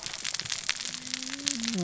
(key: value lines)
label: biophony, cascading saw
recorder: SoundTrap 600 or HydroMoth